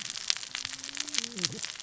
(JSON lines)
{"label": "biophony, cascading saw", "recorder": "SoundTrap 600 or HydroMoth"}